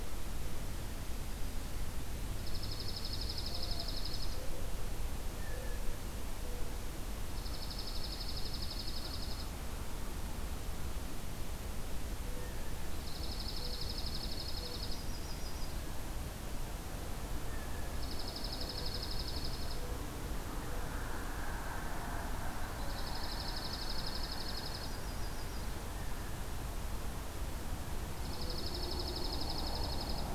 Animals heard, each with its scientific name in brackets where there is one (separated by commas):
Mourning Dove (Zenaida macroura), Dark-eyed Junco (Junco hyemalis), Black-throated Green Warbler (Setophaga virens), Yellow-rumped Warbler (Setophaga coronata), Blue Jay (Cyanocitta cristata)